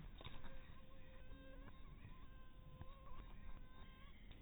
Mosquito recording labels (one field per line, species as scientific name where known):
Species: mosquito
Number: one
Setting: cup